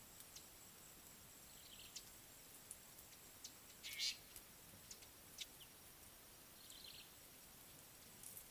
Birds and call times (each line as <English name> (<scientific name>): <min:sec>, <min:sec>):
Brown-tailed Chat (Oenanthe scotocerca): 0:01.8, 0:06.8
Fork-tailed Drongo (Dicrurus adsimilis): 0:04.0